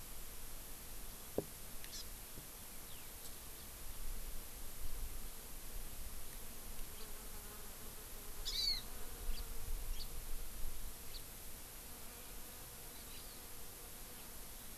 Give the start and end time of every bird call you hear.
1.9s-2.0s: Hawaii Amakihi (Chlorodrepanis virens)
2.5s-3.0s: Eurasian Skylark (Alauda arvensis)
3.5s-3.7s: Hawaii Amakihi (Chlorodrepanis virens)
6.9s-7.0s: House Finch (Haemorhous mexicanus)
8.5s-8.8s: Hawaii Amakihi (Chlorodrepanis virens)
9.2s-9.4s: House Finch (Haemorhous mexicanus)
9.9s-10.0s: House Finch (Haemorhous mexicanus)
11.1s-11.2s: House Finch (Haemorhous mexicanus)
12.8s-13.4s: Hawaii Amakihi (Chlorodrepanis virens)

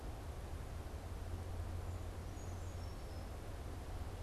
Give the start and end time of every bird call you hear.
2.2s-3.5s: Brown Creeper (Certhia americana)

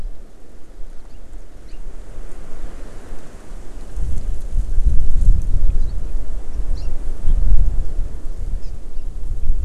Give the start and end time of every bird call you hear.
6.8s-6.9s: Hawaii Amakihi (Chlorodrepanis virens)
8.6s-8.7s: Hawaii Amakihi (Chlorodrepanis virens)

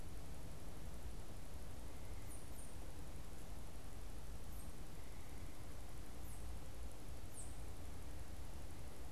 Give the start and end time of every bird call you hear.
2.1s-7.6s: unidentified bird

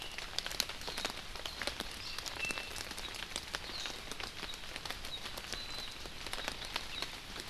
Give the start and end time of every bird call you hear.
2.3s-2.7s: Apapane (Himatione sanguinea)
3.6s-4.0s: Warbling White-eye (Zosterops japonicus)
5.5s-5.9s: Warbling White-eye (Zosterops japonicus)

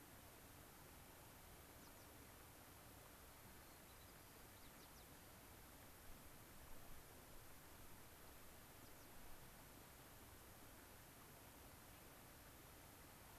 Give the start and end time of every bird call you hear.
1.8s-2.1s: American Pipit (Anthus rubescens)
3.4s-5.4s: White-crowned Sparrow (Zonotrichia leucophrys)
8.7s-9.1s: American Pipit (Anthus rubescens)

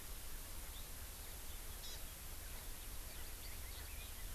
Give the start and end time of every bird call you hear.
1.6s-2.0s: Hawaii Amakihi (Chlorodrepanis virens)

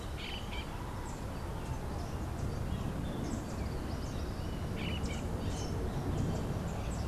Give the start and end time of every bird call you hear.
0.0s-7.1s: Crimson-fronted Parakeet (Psittacara finschi)

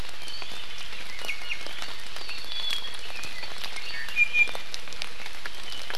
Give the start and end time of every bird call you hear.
2.2s-4.1s: Apapane (Himatione sanguinea)
4.1s-4.7s: Iiwi (Drepanis coccinea)

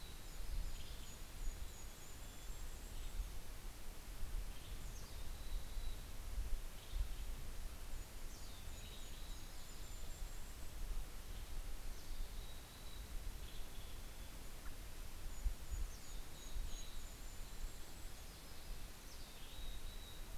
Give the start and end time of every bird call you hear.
0.0s-3.7s: Yellow-rumped Warbler (Setophaga coronata)
0.5s-1.8s: Western Tanager (Piranga ludoviciana)
1.4s-2.9s: Mountain Chickadee (Poecile gambeli)
4.4s-5.4s: Western Tanager (Piranga ludoviciana)
4.7s-6.2s: Mountain Chickadee (Poecile gambeli)
6.4s-7.7s: Western Tanager (Piranga ludoviciana)
7.1s-11.6s: Yellow-rumped Warbler (Setophaga coronata)
8.6s-9.5s: Western Tanager (Piranga ludoviciana)
11.0s-12.2s: Western Tanager (Piranga ludoviciana)
11.8s-14.5s: Mountain Chickadee (Poecile gambeli)
13.6s-20.4s: Red-breasted Nuthatch (Sitta canadensis)
14.0s-15.6s: American Robin (Turdus migratorius)
14.8s-19.4s: Yellow-rumped Warbler (Setophaga coronata)
15.0s-17.3s: Mountain Chickadee (Poecile gambeli)
16.4s-17.5s: Western Tanager (Piranga ludoviciana)
18.6s-20.3s: Western Tanager (Piranga ludoviciana)
18.9s-20.4s: Mountain Chickadee (Poecile gambeli)

